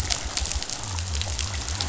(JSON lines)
{"label": "biophony", "recorder": "SoundTrap 500"}